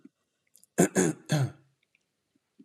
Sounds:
Throat clearing